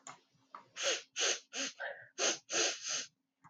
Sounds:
Sniff